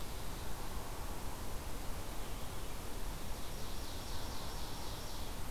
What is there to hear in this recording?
Ovenbird